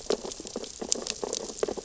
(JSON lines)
{"label": "biophony, sea urchins (Echinidae)", "recorder": "SoundTrap 600 or HydroMoth"}